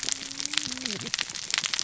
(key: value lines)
label: biophony, cascading saw
recorder: SoundTrap 600 or HydroMoth